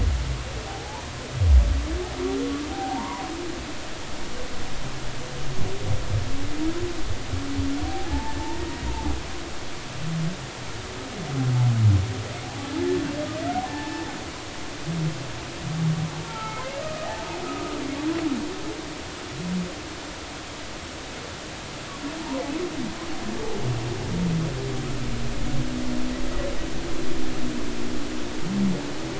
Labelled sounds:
0.7	1.0	humpback whale, 0.80 to 1.0 kHz
2.7	3.3	humpback whale, 0.80 to 1.2 kHz
7.9	8.9	humpback whale, 0.80 to 1.9 kHz
12.8	14.1	humpback whale, 0.80 to 1.9 kHz
16.2	17.1	humpback whale, 0.83 to 1.4 kHz
17.4	17.8	humpback whale, 1.2 to 1.4 kHz
22.2	22.4	humpback whale, 0.83 to 1.1 kHz

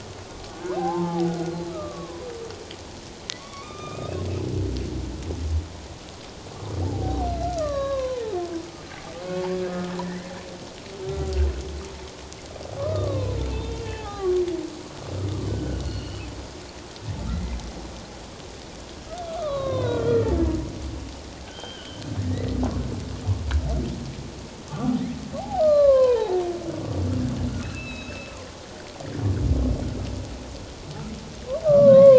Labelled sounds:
0.6	1.4	humpback whale, 0.78 to 1.7 kHz
1.7	2.3	humpback whale, 0.94 to 1.3 kHz
3.3	4.1	humpback whale, 1.0 to 3.7 kHz
6.8	8.2	humpback whale, 0.78 to 4.3 kHz
9.6	10.3	humpback whale, 1.2 to 2.2 kHz
11.0	11.3	humpback whale, 1.2 to 1.4 kHz
12.8	14.4	humpback whale, 0.78 to 3.7 kHz
15.5	16.2	humpback whale, 1.4 to 4.5 kHz
17.3	17.6	humpback whale, 1.9 to 2.1 kHz
19.3	20.4	humpback whale, 0.91 to 4.2 kHz
21.4	22.6	humpback whale, 1.4 to 3.4 kHz
25.4	26.4	humpback whale, 0.78 to 4.3 kHz
27.6	28.3	humpback whale, 2.5 to 5.3 kHz
31.8	32.1	humpback whale, 3.7 to 4.0 kHz

